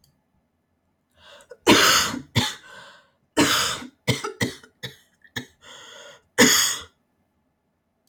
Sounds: Cough